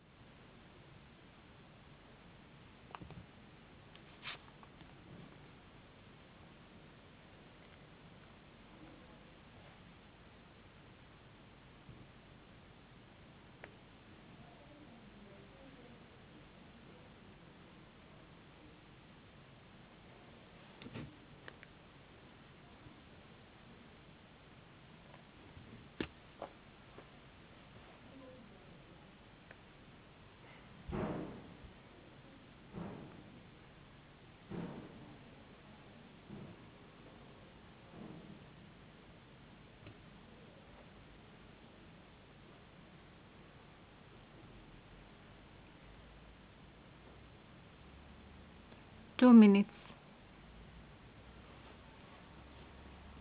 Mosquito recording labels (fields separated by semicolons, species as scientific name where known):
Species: no mosquito; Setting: insect culture